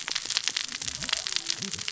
{"label": "biophony, cascading saw", "recorder": "SoundTrap 600 or HydroMoth"}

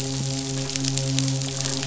{"label": "biophony, midshipman", "recorder": "SoundTrap 500"}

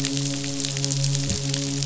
{"label": "biophony, midshipman", "recorder": "SoundTrap 500"}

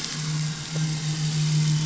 {"label": "anthrophony, boat engine", "recorder": "SoundTrap 500"}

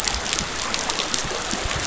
{"label": "biophony", "recorder": "SoundTrap 500"}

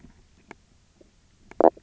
{"label": "biophony, knock croak", "recorder": "SoundTrap 300"}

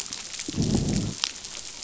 {"label": "biophony, growl", "recorder": "SoundTrap 500"}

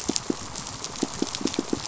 {"label": "biophony, pulse", "recorder": "SoundTrap 500"}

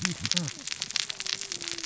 {"label": "biophony, cascading saw", "recorder": "SoundTrap 600 or HydroMoth"}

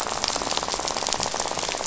{"label": "biophony, rattle", "recorder": "SoundTrap 500"}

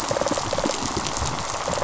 {"label": "biophony, rattle response", "recorder": "SoundTrap 500"}
{"label": "biophony, pulse", "recorder": "SoundTrap 500"}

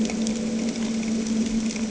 {"label": "anthrophony, boat engine", "recorder": "HydroMoth"}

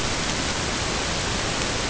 {"label": "ambient", "recorder": "HydroMoth"}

